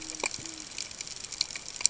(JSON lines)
{"label": "ambient", "recorder": "HydroMoth"}